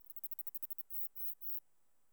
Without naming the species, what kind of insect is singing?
orthopteran